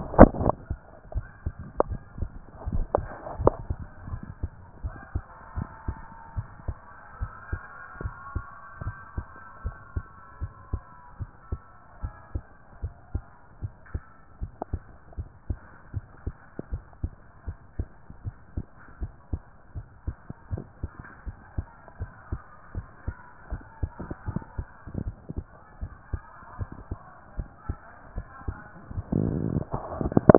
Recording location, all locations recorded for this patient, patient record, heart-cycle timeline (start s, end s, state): tricuspid valve (TV)
pulmonary valve (PV)+tricuspid valve (TV)+mitral valve (MV)
#Age: nan
#Sex: Female
#Height: nan
#Weight: nan
#Pregnancy status: True
#Murmur: Absent
#Murmur locations: nan
#Most audible location: nan
#Systolic murmur timing: nan
#Systolic murmur shape: nan
#Systolic murmur grading: nan
#Systolic murmur pitch: nan
#Systolic murmur quality: nan
#Diastolic murmur timing: nan
#Diastolic murmur shape: nan
#Diastolic murmur grading: nan
#Diastolic murmur pitch: nan
#Diastolic murmur quality: nan
#Outcome: Normal
#Campaign: 2014 screening campaign
0.00	3.78	unannotated
3.78	4.06	diastole
4.06	4.22	S1
4.22	4.42	systole
4.42	4.52	S2
4.52	4.82	diastole
4.82	4.96	S1
4.96	5.14	systole
5.14	5.24	S2
5.24	5.56	diastole
5.56	5.68	S1
5.68	5.86	systole
5.86	6.00	S2
6.00	6.36	diastole
6.36	6.48	S1
6.48	6.66	systole
6.66	6.78	S2
6.78	7.20	diastole
7.20	7.30	S1
7.30	7.50	systole
7.50	7.62	S2
7.62	8.02	diastole
8.02	8.14	S1
8.14	8.34	systole
8.34	8.44	S2
8.44	8.82	diastole
8.82	8.96	S1
8.96	9.16	systole
9.16	9.26	S2
9.26	9.64	diastole
9.64	9.76	S1
9.76	9.94	systole
9.94	10.04	S2
10.04	10.40	diastole
10.40	10.52	S1
10.52	10.72	systole
10.72	10.82	S2
10.82	11.20	diastole
11.20	11.30	S1
11.30	11.50	systole
11.50	11.60	S2
11.60	12.02	diastole
12.02	12.12	S1
12.12	12.34	systole
12.34	12.44	S2
12.44	12.82	diastole
12.82	12.94	S1
12.94	13.14	systole
13.14	13.24	S2
13.24	13.62	diastole
13.62	13.72	S1
13.72	13.92	systole
13.92	14.02	S2
14.02	14.40	diastole
14.40	14.52	S1
14.52	14.72	systole
14.72	14.82	S2
14.82	15.18	diastole
15.18	15.28	S1
15.28	15.48	systole
15.48	15.58	S2
15.58	15.94	diastole
15.94	16.04	S1
16.04	16.24	systole
16.24	16.34	S2
16.34	16.70	diastole
16.70	16.82	S1
16.82	17.02	systole
17.02	17.12	S2
17.12	17.46	diastole
17.46	17.56	S1
17.56	17.76	systole
17.76	17.88	S2
17.88	18.24	diastole
18.24	18.34	S1
18.34	18.54	systole
18.54	18.64	S2
18.64	19.00	diastole
19.00	19.12	S1
19.12	19.30	systole
19.30	19.42	S2
19.42	19.76	diastole
19.76	19.86	S1
19.86	20.06	systole
20.06	20.16	S2
20.16	20.52	diastole
20.52	20.66	S1
20.66	20.82	systole
20.82	20.90	S2
20.90	21.26	diastole
21.26	21.36	S1
21.36	21.56	systole
21.56	21.66	S2
21.66	22.00	diastole
22.00	22.10	S1
22.10	22.30	systole
22.30	22.40	S2
22.40	22.76	diastole
22.76	22.86	S1
22.86	23.06	systole
23.06	23.16	S2
23.16	23.50	diastole
23.50	23.62	S1
23.62	23.80	systole
23.80	30.38	unannotated